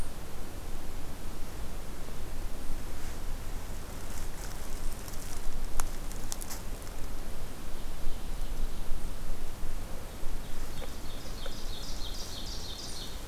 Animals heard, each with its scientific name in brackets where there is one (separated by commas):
Ovenbird (Seiurus aurocapilla)